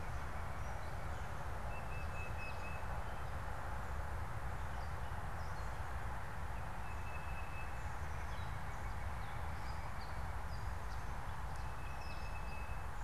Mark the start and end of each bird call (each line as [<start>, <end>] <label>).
[0.00, 3.11] Tufted Titmouse (Baeolophus bicolor)
[0.00, 13.04] unidentified bird
[6.61, 7.81] Tufted Titmouse (Baeolophus bicolor)
[11.51, 13.04] Tufted Titmouse (Baeolophus bicolor)